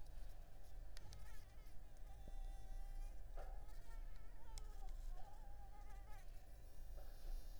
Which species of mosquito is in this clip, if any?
Anopheles arabiensis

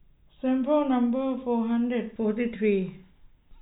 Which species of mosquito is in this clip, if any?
no mosquito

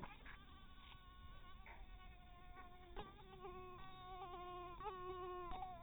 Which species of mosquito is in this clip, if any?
mosquito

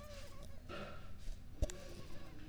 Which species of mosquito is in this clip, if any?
Culex pipiens complex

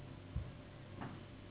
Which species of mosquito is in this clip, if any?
Anopheles gambiae s.s.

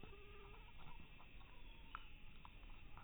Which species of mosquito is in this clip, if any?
mosquito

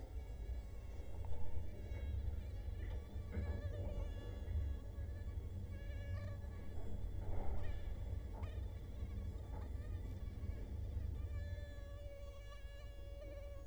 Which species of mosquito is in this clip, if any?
Culex quinquefasciatus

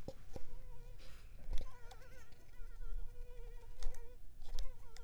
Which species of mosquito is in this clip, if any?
Anopheles gambiae s.l.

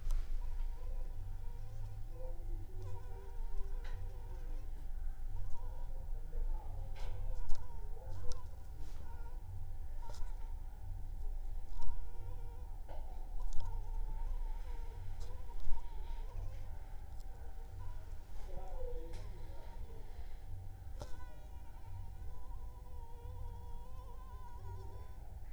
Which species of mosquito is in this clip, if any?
Anopheles funestus s.l.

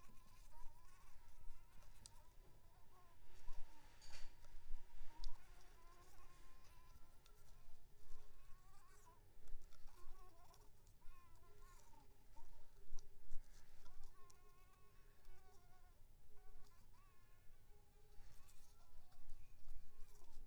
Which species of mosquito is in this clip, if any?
Anopheles arabiensis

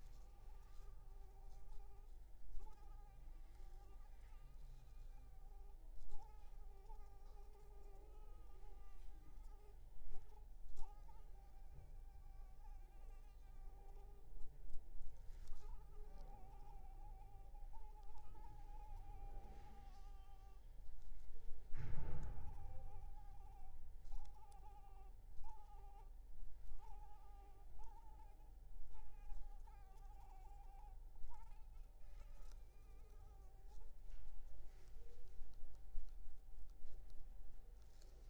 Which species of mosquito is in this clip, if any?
Anopheles arabiensis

